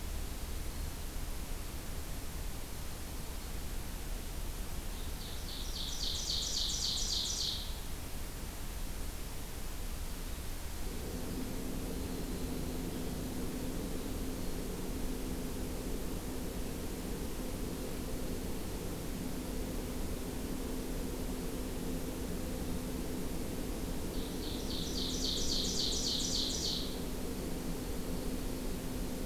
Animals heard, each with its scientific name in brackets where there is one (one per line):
Winter Wren (Troglodytes hiemalis)
Ovenbird (Seiurus aurocapilla)